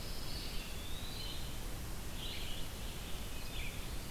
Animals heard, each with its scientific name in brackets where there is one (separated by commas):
Eastern Wood-Pewee (Contopus virens), Pine Warbler (Setophaga pinus), Red-eyed Vireo (Vireo olivaceus)